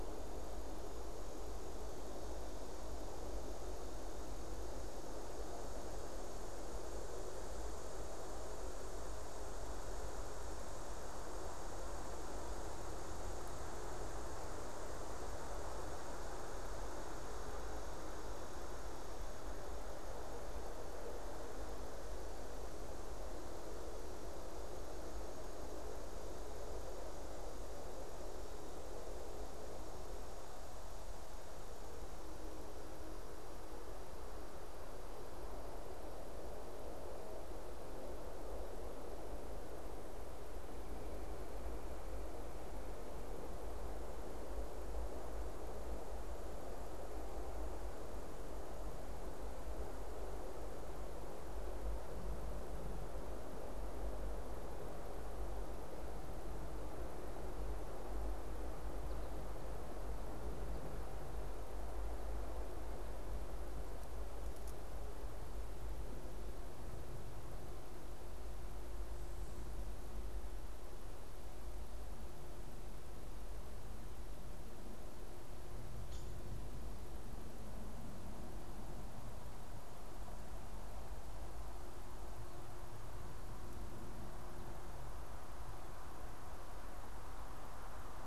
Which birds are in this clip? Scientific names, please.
Dryobates villosus